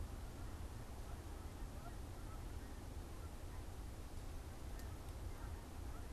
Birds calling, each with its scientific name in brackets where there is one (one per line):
Canada Goose (Branta canadensis)